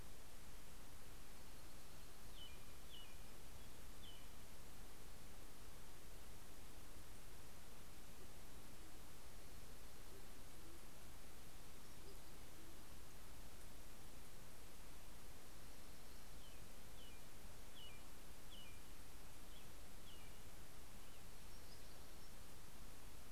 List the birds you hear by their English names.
American Robin, Band-tailed Pigeon, Dark-eyed Junco, Townsend's Warbler